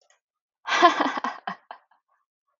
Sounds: Laughter